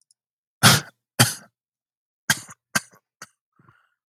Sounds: Cough